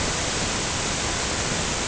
{"label": "ambient", "recorder": "HydroMoth"}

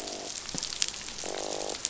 {"label": "biophony, croak", "recorder": "SoundTrap 500"}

